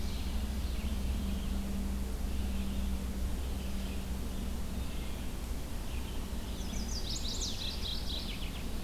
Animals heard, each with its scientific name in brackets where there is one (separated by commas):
Mourning Warbler (Geothlypis philadelphia), Red-eyed Vireo (Vireo olivaceus), Chestnut-sided Warbler (Setophaga pensylvanica)